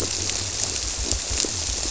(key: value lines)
label: biophony
recorder: SoundTrap 300